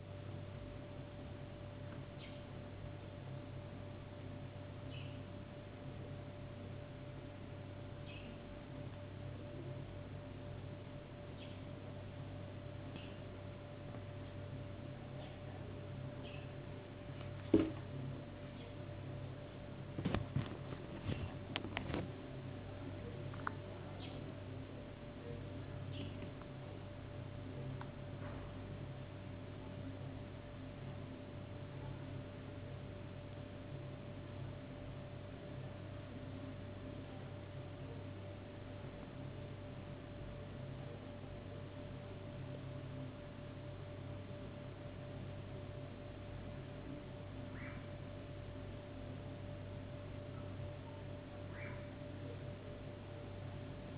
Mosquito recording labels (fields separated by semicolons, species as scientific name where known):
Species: no mosquito; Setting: insect culture